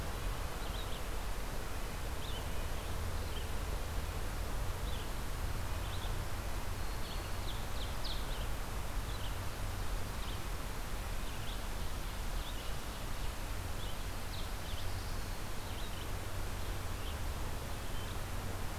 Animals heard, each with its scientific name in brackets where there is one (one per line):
Ovenbird (Seiurus aurocapilla)
Black-throated Blue Warbler (Setophaga caerulescens)
Black-throated Green Warbler (Setophaga virens)
Red-eyed Vireo (Vireo olivaceus)